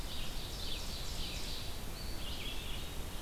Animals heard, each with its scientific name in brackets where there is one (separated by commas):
Ovenbird (Seiurus aurocapilla), Red-eyed Vireo (Vireo olivaceus), Eastern Wood-Pewee (Contopus virens)